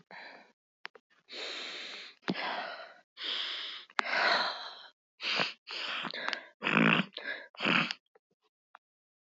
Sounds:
Sniff